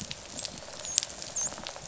{"label": "biophony, dolphin", "recorder": "SoundTrap 500"}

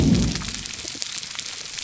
{"label": "biophony", "recorder": "SoundTrap 300"}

